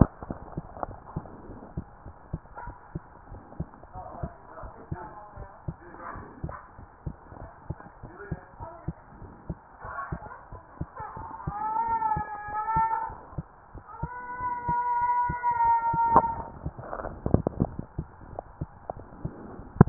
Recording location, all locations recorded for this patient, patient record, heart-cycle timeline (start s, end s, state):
pulmonary valve (PV)
pulmonary valve (PV)+tricuspid valve (TV)
#Age: Child
#Sex: Female
#Height: 136.0 cm
#Weight: 39.2 kg
#Pregnancy status: False
#Murmur: Absent
#Murmur locations: nan
#Most audible location: nan
#Systolic murmur timing: nan
#Systolic murmur shape: nan
#Systolic murmur grading: nan
#Systolic murmur pitch: nan
#Systolic murmur quality: nan
#Diastolic murmur timing: nan
#Diastolic murmur shape: nan
#Diastolic murmur grading: nan
#Diastolic murmur pitch: nan
#Diastolic murmur quality: nan
#Outcome: Normal
#Campaign: 2015 screening campaign
0.00	1.47	unannotated
1.47	1.62	S1
1.62	1.76	systole
1.76	1.86	S2
1.86	2.04	diastole
2.04	2.14	S1
2.14	2.28	systole
2.28	2.42	S2
2.42	2.66	diastole
2.66	2.76	S1
2.76	2.94	systole
2.94	3.04	S2
3.04	3.30	diastole
3.30	3.42	S1
3.42	3.58	systole
3.58	3.70	S2
3.70	3.96	diastole
3.96	4.04	S1
4.04	4.20	systole
4.20	4.32	S2
4.32	4.62	diastole
4.62	4.72	S1
4.72	4.90	systole
4.90	5.04	S2
5.04	5.36	diastole
5.36	5.48	S1
5.48	5.64	systole
5.64	5.78	S2
5.78	6.08	diastole
6.08	6.24	S1
6.24	6.42	systole
6.42	6.56	S2
6.56	6.78	diastole
6.78	6.88	S1
6.88	7.02	systole
7.02	7.16	S2
7.16	7.40	diastole
7.40	7.50	S1
7.50	7.66	systole
7.66	7.80	S2
7.80	8.04	diastole
8.04	8.14	S1
8.14	8.28	systole
8.28	8.38	S2
8.38	8.60	diastole
8.60	8.68	S1
8.68	8.84	systole
8.84	8.94	S2
8.94	9.20	diastole
9.20	9.34	S1
9.34	9.46	systole
9.46	9.58	S2
9.58	9.84	diastole
9.84	9.94	S1
9.94	10.08	systole
10.08	10.22	S2
10.22	10.52	diastole
10.52	10.62	S1
10.62	10.80	systole
10.80	10.90	S2
10.90	11.17	diastole
11.17	11.30	S1
11.30	11.46	systole
11.46	11.58	S2
11.58	19.89	unannotated